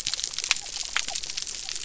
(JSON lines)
{"label": "biophony", "recorder": "SoundTrap 300"}